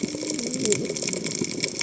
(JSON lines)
{"label": "biophony, cascading saw", "recorder": "HydroMoth"}